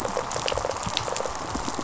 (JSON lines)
{"label": "biophony, rattle response", "recorder": "SoundTrap 500"}